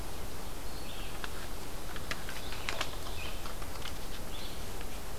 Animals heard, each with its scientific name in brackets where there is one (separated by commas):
Red-eyed Vireo (Vireo olivaceus)